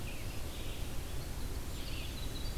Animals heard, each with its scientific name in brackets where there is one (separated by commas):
Red-eyed Vireo (Vireo olivaceus), Winter Wren (Troglodytes hiemalis)